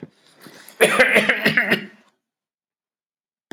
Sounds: Cough